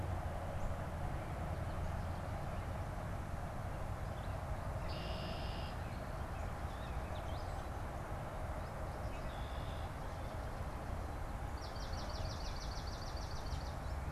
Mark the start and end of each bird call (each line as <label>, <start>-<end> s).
Red-winged Blackbird (Agelaius phoeniceus), 4.6-5.9 s
Red-winged Blackbird (Agelaius phoeniceus), 8.9-10.1 s
Swamp Sparrow (Melospiza georgiana), 11.3-14.1 s